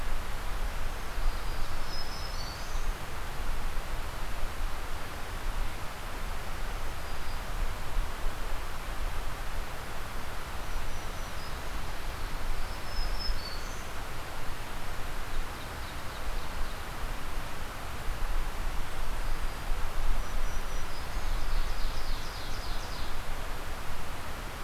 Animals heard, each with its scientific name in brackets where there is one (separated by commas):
Ovenbird (Seiurus aurocapilla), Black-throated Green Warbler (Setophaga virens)